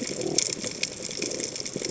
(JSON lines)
{"label": "biophony", "recorder": "HydroMoth"}